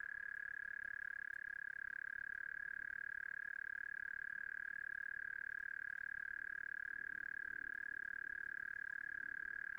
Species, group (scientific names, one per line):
Gryllotalpa gryllotalpa
Orthoptera